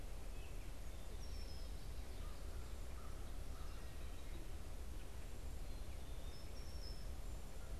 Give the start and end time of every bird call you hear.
[0.00, 7.14] Red-winged Blackbird (Agelaius phoeniceus)
[2.14, 3.94] American Crow (Corvus brachyrhynchos)

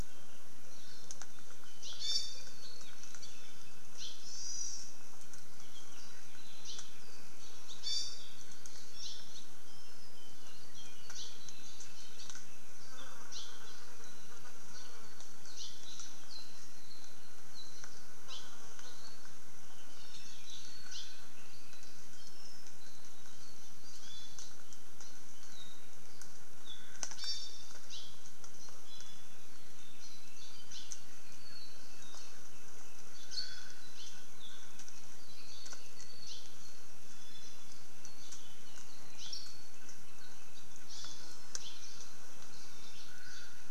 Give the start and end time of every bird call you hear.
[0.70, 1.20] Iiwi (Drepanis coccinea)
[1.80, 2.10] Hawaii Creeper (Loxops mana)
[1.90, 2.60] Iiwi (Drepanis coccinea)
[3.90, 4.30] Hawaii Creeper (Loxops mana)
[4.20, 4.90] Hawaii Amakihi (Chlorodrepanis virens)
[6.60, 6.90] Hawaii Creeper (Loxops mana)
[7.80, 8.30] Iiwi (Drepanis coccinea)
[8.90, 9.30] Hawaii Creeper (Loxops mana)
[11.10, 11.40] Hawaii Creeper (Loxops mana)
[13.30, 13.60] Hawaii Creeper (Loxops mana)
[15.50, 15.80] Hawaii Creeper (Loxops mana)
[16.30, 17.20] Apapane (Himatione sanguinea)
[17.50, 17.90] Apapane (Himatione sanguinea)
[18.20, 18.50] Hawaii Creeper (Loxops mana)
[20.80, 21.20] Hawaii Creeper (Loxops mana)
[24.00, 24.50] Iiwi (Drepanis coccinea)
[25.40, 26.00] Apapane (Himatione sanguinea)
[26.60, 27.00] Apapane (Himatione sanguinea)
[27.10, 27.80] Iiwi (Drepanis coccinea)
[27.80, 28.30] Hawaii Creeper (Loxops mana)
[28.80, 29.40] Iiwi (Drepanis coccinea)
[30.60, 30.90] Hawaii Creeper (Loxops mana)
[34.30, 34.80] Apapane (Himatione sanguinea)
[36.20, 36.50] Hawaii Creeper (Loxops mana)
[39.10, 39.40] Hawaii Creeper (Loxops mana)
[40.80, 41.40] Hawaii Amakihi (Chlorodrepanis virens)
[41.60, 41.80] Hawaii Creeper (Loxops mana)

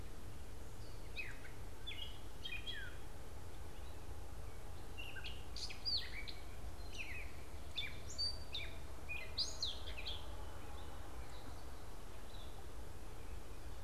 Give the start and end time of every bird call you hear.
[0.82, 10.52] Gray Catbird (Dumetella carolinensis)
[12.12, 12.62] Red-eyed Vireo (Vireo olivaceus)

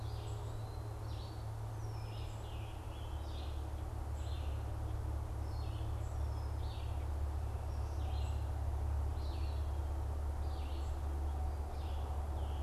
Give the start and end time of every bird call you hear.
[0.00, 0.98] Eastern Wood-Pewee (Contopus virens)
[0.00, 12.62] Red-eyed Vireo (Vireo olivaceus)
[0.00, 12.62] unidentified bird
[1.78, 3.58] Scarlet Tanager (Piranga olivacea)
[11.98, 12.62] Scarlet Tanager (Piranga olivacea)

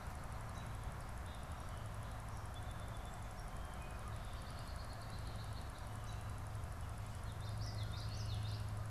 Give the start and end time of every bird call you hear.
[2.30, 4.40] Song Sparrow (Melospiza melodia)
[4.10, 6.30] Red-winged Blackbird (Agelaius phoeniceus)
[7.10, 8.90] Common Yellowthroat (Geothlypis trichas)

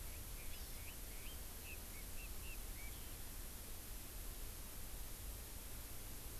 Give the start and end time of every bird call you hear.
[0.00, 2.90] Chinese Hwamei (Garrulax canorus)
[0.50, 0.90] Hawaii Amakihi (Chlorodrepanis virens)

